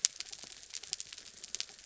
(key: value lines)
label: anthrophony, mechanical
recorder: SoundTrap 300